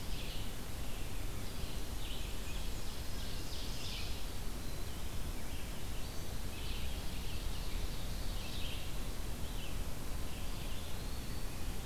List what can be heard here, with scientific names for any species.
Seiurus aurocapilla, Vireo olivaceus, Mniotilta varia, Contopus virens